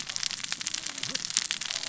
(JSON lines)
{"label": "biophony, cascading saw", "recorder": "SoundTrap 600 or HydroMoth"}